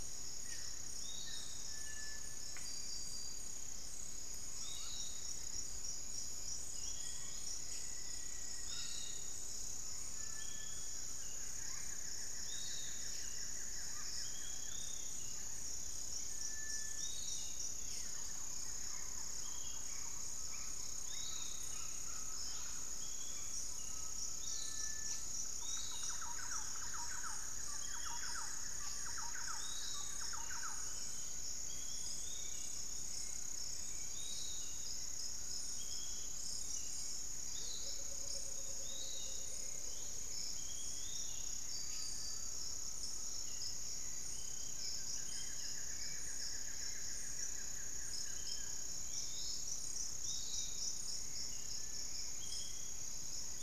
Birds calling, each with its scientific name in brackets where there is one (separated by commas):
Thrush-like Wren (Campylorhynchus turdinus), Piratic Flycatcher (Legatus leucophaius), Cinereous Tinamou (Crypturellus cinereus), Undulated Tinamou (Crypturellus undulatus), Barred Forest-Falcon (Micrastur ruficollis), Black-faced Antthrush (Formicarius analis), unidentified bird, Buff-throated Woodcreeper (Xiphorhynchus guttatus), Hauxwell's Thrush (Turdus hauxwelli), Long-winged Antwren (Myrmotherula longipennis), Great Tinamou (Tinamus major), Amazonian Motmot (Momotus momota)